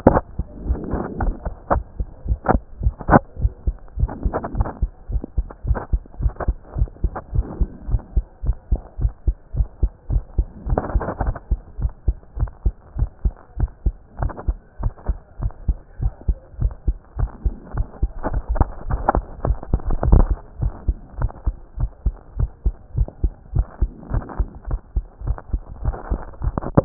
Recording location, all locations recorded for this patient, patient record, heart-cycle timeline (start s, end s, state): mitral valve (MV)
aortic valve (AV)+pulmonary valve (PV)+tricuspid valve (TV)+mitral valve (MV)
#Age: Child
#Sex: Male
#Height: 131.0 cm
#Weight: 24.8 kg
#Pregnancy status: False
#Murmur: Absent
#Murmur locations: nan
#Most audible location: nan
#Systolic murmur timing: nan
#Systolic murmur shape: nan
#Systolic murmur grading: nan
#Systolic murmur pitch: nan
#Systolic murmur quality: nan
#Diastolic murmur timing: nan
#Diastolic murmur shape: nan
#Diastolic murmur grading: nan
#Diastolic murmur pitch: nan
#Diastolic murmur quality: nan
#Outcome: Normal
#Campaign: 2014 screening campaign
0.00	4.98	unannotated
4.98	5.10	diastole
5.10	5.22	S1
5.22	5.36	systole
5.36	5.46	S2
5.46	5.66	diastole
5.66	5.78	S1
5.78	5.92	systole
5.92	6.02	S2
6.02	6.20	diastole
6.20	6.32	S1
6.32	6.46	systole
6.46	6.56	S2
6.56	6.76	diastole
6.76	6.88	S1
6.88	7.02	systole
7.02	7.12	S2
7.12	7.34	diastole
7.34	7.46	S1
7.46	7.60	systole
7.60	7.68	S2
7.68	7.88	diastole
7.88	8.02	S1
8.02	8.16	systole
8.16	8.24	S2
8.24	8.44	diastole
8.44	8.56	S1
8.56	8.70	systole
8.70	8.80	S2
8.80	9.00	diastole
9.00	9.12	S1
9.12	9.26	systole
9.26	9.36	S2
9.36	9.56	diastole
9.56	9.68	S1
9.68	9.82	systole
9.82	9.90	S2
9.90	10.10	diastole
10.10	10.22	S1
10.22	10.36	systole
10.36	10.46	S2
10.46	10.68	diastole
10.68	10.80	S1
10.80	10.94	systole
10.94	11.02	S2
11.02	11.22	diastole
11.22	11.34	S1
11.34	11.50	systole
11.50	11.60	S2
11.60	11.80	diastole
11.80	11.92	S1
11.92	12.06	systole
12.06	12.16	S2
12.16	12.38	diastole
12.38	12.50	S1
12.50	12.64	systole
12.64	12.74	S2
12.74	12.98	diastole
12.98	13.10	S1
13.10	13.24	systole
13.24	13.34	S2
13.34	13.58	diastole
13.58	13.70	S1
13.70	13.84	systole
13.84	13.94	S2
13.94	14.20	diastole
14.20	14.32	S1
14.32	14.46	systole
14.46	14.56	S2
14.56	14.82	diastole
14.82	14.92	S1
14.92	15.08	systole
15.08	15.18	S2
15.18	15.40	diastole
15.40	15.52	S1
15.52	15.68	systole
15.68	15.76	S2
15.76	16.02	diastole
16.02	16.12	S1
16.12	16.28	systole
16.28	16.36	S2
16.36	16.60	diastole
16.60	16.72	S1
16.72	16.86	systole
16.86	16.96	S2
16.96	17.18	diastole
17.18	17.30	S1
17.30	17.44	systole
17.44	17.54	S2
17.54	17.76	diastole
17.76	26.85	unannotated